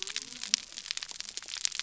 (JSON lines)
{"label": "biophony", "recorder": "SoundTrap 300"}